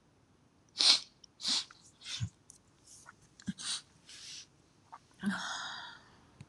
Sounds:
Sniff